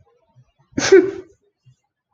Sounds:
Sneeze